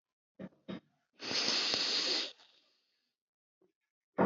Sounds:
Sniff